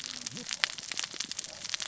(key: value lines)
label: biophony, cascading saw
recorder: SoundTrap 600 or HydroMoth